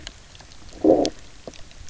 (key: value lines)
label: biophony, low growl
recorder: SoundTrap 300